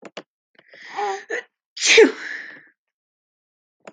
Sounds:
Sneeze